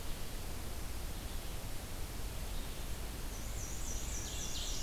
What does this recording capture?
Black-and-white Warbler, Wood Thrush, Ovenbird